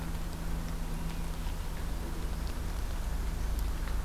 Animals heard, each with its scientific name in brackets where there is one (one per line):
Northern Parula (Setophaga americana)